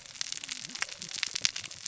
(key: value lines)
label: biophony, cascading saw
recorder: SoundTrap 600 or HydroMoth